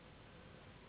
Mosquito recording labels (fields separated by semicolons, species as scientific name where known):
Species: Anopheles gambiae s.s.; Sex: female; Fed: unfed; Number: one; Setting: insect culture